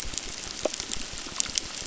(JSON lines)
{"label": "biophony, crackle", "recorder": "SoundTrap 600"}